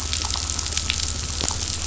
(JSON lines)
{"label": "anthrophony, boat engine", "recorder": "SoundTrap 500"}